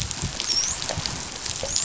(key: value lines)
label: biophony, dolphin
recorder: SoundTrap 500